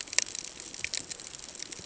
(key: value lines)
label: ambient
recorder: HydroMoth